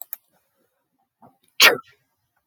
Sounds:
Sneeze